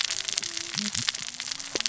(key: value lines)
label: biophony, cascading saw
recorder: SoundTrap 600 or HydroMoth